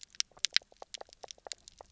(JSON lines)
{"label": "biophony, knock croak", "recorder": "SoundTrap 300"}